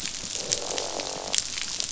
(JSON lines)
{"label": "biophony, croak", "recorder": "SoundTrap 500"}